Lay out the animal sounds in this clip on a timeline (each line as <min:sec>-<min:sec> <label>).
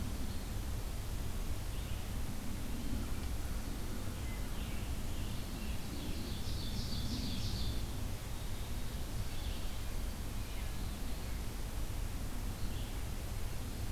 0:00.0-0:06.4 Red-eyed Vireo (Vireo olivaceus)
0:04.2-0:06.2 Scarlet Tanager (Piranga olivacea)
0:05.6-0:08.0 Ovenbird (Seiurus aurocapilla)
0:09.0-0:13.9 Red-eyed Vireo (Vireo olivaceus)
0:10.3-0:10.9 Wood Thrush (Hylocichla mustelina)